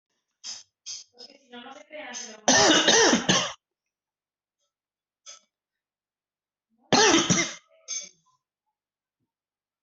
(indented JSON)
{
  "expert_labels": [
    {
      "quality": "ok",
      "cough_type": "dry",
      "dyspnea": false,
      "wheezing": false,
      "stridor": false,
      "choking": false,
      "congestion": false,
      "nothing": true,
      "diagnosis": "COVID-19",
      "severity": "severe"
    }
  ],
  "age": 45,
  "gender": "male",
  "respiratory_condition": false,
  "fever_muscle_pain": false,
  "status": "symptomatic"
}